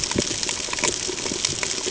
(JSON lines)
{"label": "ambient", "recorder": "HydroMoth"}